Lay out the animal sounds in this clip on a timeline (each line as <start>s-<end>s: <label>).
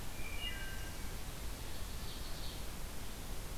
0.0s-1.1s: Wood Thrush (Hylocichla mustelina)
1.2s-2.7s: Ovenbird (Seiurus aurocapilla)